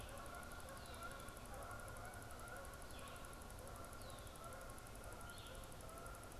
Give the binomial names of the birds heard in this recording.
Branta canadensis, Vireo olivaceus